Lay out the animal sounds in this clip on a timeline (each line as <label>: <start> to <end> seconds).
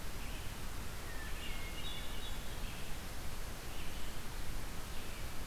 Red-eyed Vireo (Vireo olivaceus): 0.0 to 5.5 seconds
Hermit Thrush (Catharus guttatus): 1.1 to 2.6 seconds